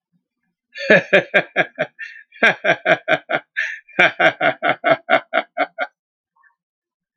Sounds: Laughter